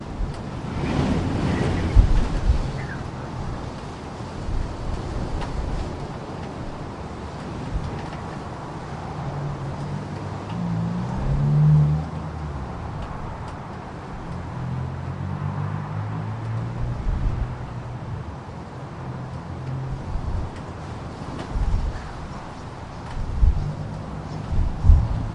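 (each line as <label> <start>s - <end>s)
Wind blowing outdoors. 1.7s - 3.0s
A vehicle is approaching from a distance. 10.5s - 12.4s
A vehicle is approaching from a distance. 14.8s - 18.0s
A vehicle is approaching from a distance. 19.1s - 21.7s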